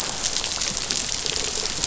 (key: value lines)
label: biophony
recorder: SoundTrap 500